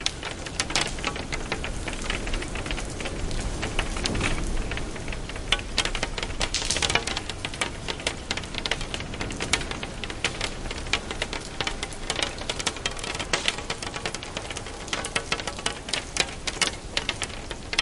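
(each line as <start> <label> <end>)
0.0 Rain showers tap against a window. 17.8
16.9 Very faint thunder rolls softly in the background. 17.3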